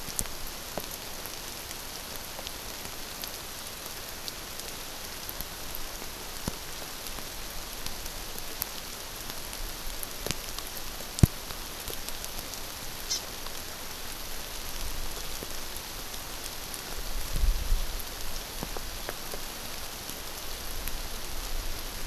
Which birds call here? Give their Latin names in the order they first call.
Chlorodrepanis virens